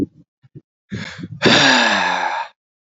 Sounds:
Sigh